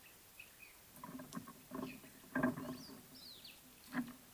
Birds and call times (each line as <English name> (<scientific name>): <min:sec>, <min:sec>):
Mocking Cliff-Chat (Thamnolaea cinnamomeiventris): 0:03.3